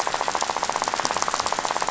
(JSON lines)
{"label": "biophony, rattle", "recorder": "SoundTrap 500"}